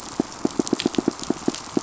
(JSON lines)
{"label": "biophony, pulse", "recorder": "SoundTrap 500"}